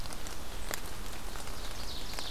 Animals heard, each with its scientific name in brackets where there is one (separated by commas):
Ovenbird (Seiurus aurocapilla)